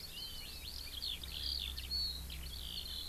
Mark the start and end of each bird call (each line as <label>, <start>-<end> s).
Eurasian Skylark (Alauda arvensis), 0.0-3.1 s
Hawaiian Hawk (Buteo solitarius), 0.1-0.7 s